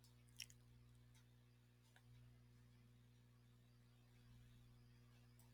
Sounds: Sneeze